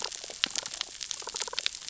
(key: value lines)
label: biophony, damselfish
recorder: SoundTrap 600 or HydroMoth